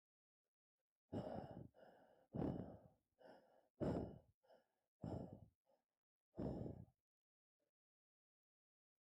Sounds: Sigh